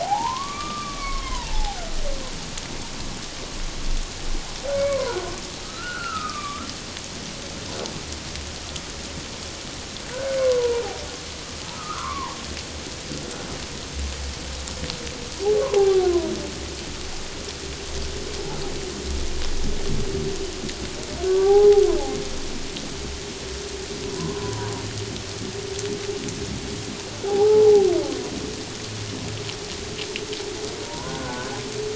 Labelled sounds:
0.0	2.0	humpback whale, 0.78 to 1.5 kHz
4.8	5.2	humpback whale, 0.84 to 1.2 kHz
5.6	6.7	humpback whale, 1.1 to 2.8 kHz
10.1	10.8	humpback whale, 0.84 to 1.6 kHz
11.6	12.4	humpback whale, 0.81 to 1.5 kHz
15.7	16.1	humpback whale, 0.78 to 1.2 kHz
21.2	21.8	humpback whale, 0.78 to 1.6 kHz
24.0	24.7	humpback whale, 0.91 to 1.1 kHz
27.3	27.9	humpback whale, 0.78 to 0.97 kHz
30.8	31.6	humpback whale, 0.88 to 1.6 kHz

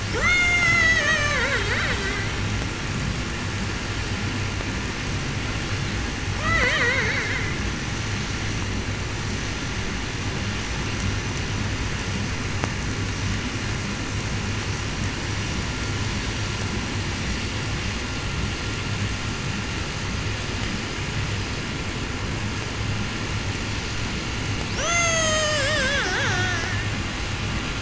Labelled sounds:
0.0	2.6	killer whale, 0.02 to 8.0 kHz
6.2	7.9	killer whale, 0.02 to 8.0 kHz
24.6	27.3	killer whale, 0.13 to 8.0 kHz

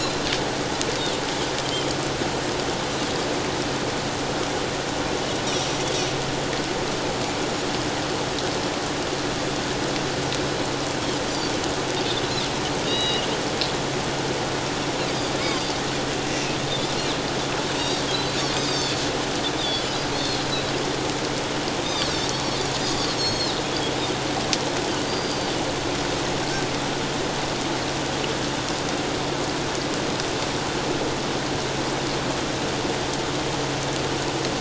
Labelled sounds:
12.9	13.3	Pacific white-sided dolphin, 2.8 to 4.0 kHz
15.4	15.7	Pacific white-sided dolphin, 4.7 to 5.0 kHz
18.3	18.9	Pacific white-sided dolphin, 3.3 to 7.6 kHz
19.6	20.4	Pacific white-sided dolphin, 3.2 to 4.9 kHz
21.8	23.6	Pacific white-sided dolphin, 3.5 to 7.7 kHz
25.1	25.6	Pacific white-sided dolphin, 4.6 to 4.8 kHz

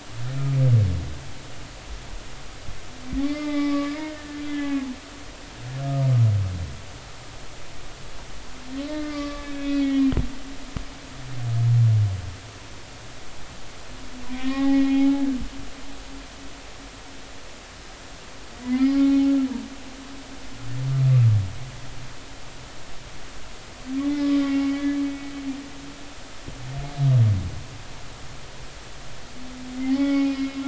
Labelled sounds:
3.2	4.9	humpback whale, 0.83 to 2.6 kHz
8.8	10.1	humpback whale, 1.1 to 4.8 kHz
14.4	15.3	humpback whale, 0.80 to 4.1 kHz
18.6	19.3	humpback whale, 0.80 to 5.0 kHz
24.0	25.0	humpback whale, 0.80 to 2.5 kHz
29.8	30.6	humpback whale, 0.80 to 2.5 kHz

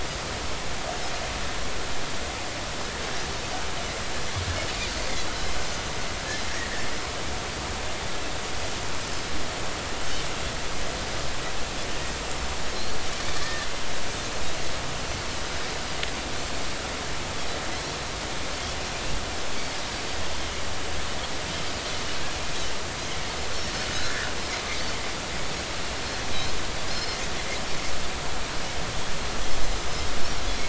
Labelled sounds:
13.4	13.7	Pacific white-sided dolphin, 1.6 to 1.9 kHz
26.9	27.2	Pacific white-sided dolphin, 4.1 to 5.4 kHz

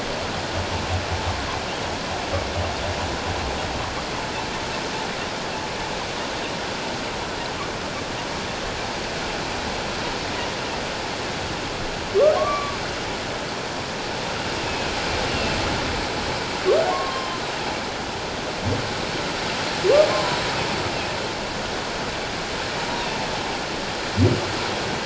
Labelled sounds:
12.4	12.8	humpback whale, 1.0 to 1.2 kHz
14.7	15.6	humpback whale, 2.4 to 2.9 kHz
16.9	17.4	humpback whale, 0.94 to 3.2 kHz
20.1	20.4	humpback whale, 0.91 to 1.1 kHz
22.9	23.2	humpback whale, 3.5 to 3.8 kHz

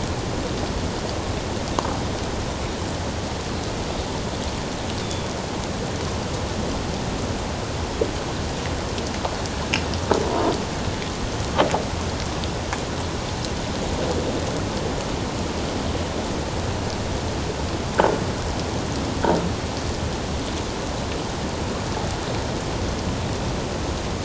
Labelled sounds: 5.0	5.3	Pacific white-sided dolphin, 3.3 to 3.7 kHz

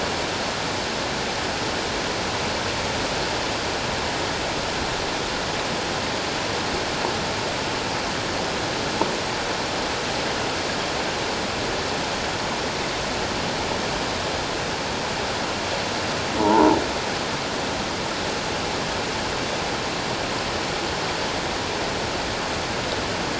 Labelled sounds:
16.4	16.8	croaking sound likely from a nearby submerged object, 0.78 to 1.0 kHz

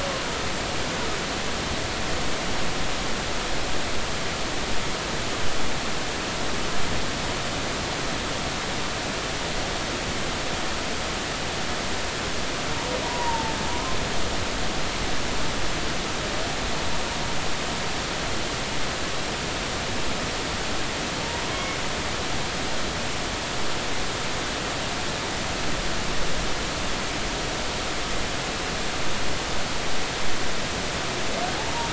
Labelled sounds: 13.0	13.5	humpback whale, 0.83 to 1.1 kHz
21.5	21.8	humpback whale, 2.1 to 2.3 kHz

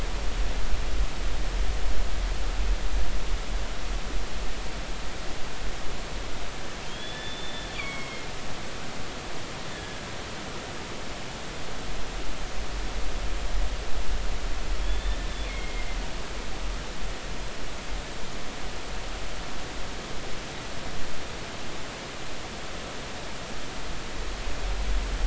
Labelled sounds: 6.8	8.3	killer whale, northern resident, G clan, 2.0 to 3.6 kHz
9.7	10.0	killer whale, northern resident, G clan, 1.6 to 1.9 kHz
14.8	15.9	killer whale, northern resident, G clan, 2.0 to 3.6 kHz

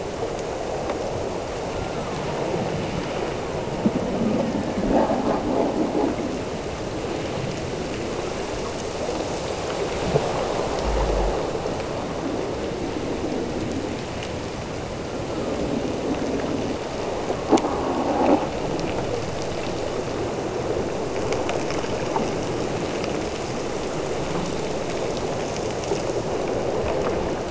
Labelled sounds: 1.7	2.7	killer whale, Bigg's (transient), Gulf of Alaska transient, 0.82 to 1.5 kHz
3.0	5.5	killer whale, Bigg's (transient), Gulf of Alaska transient, 0.77 to 2.1 kHz

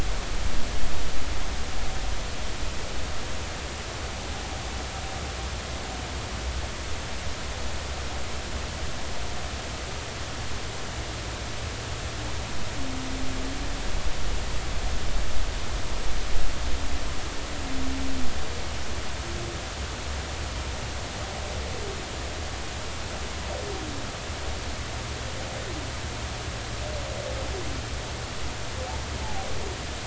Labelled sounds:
29.2	29.5	humpback whale, 0.80 to 0.93 kHz

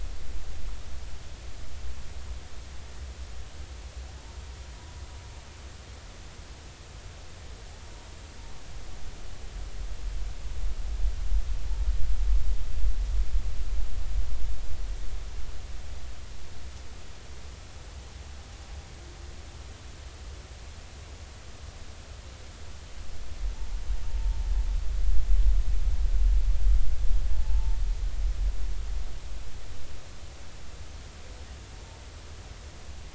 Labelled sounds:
24.1	24.4	humpback whale, 0.86 to 0.96 kHz
27.3	27.8	humpback whale, 0.83 to 0.93 kHz

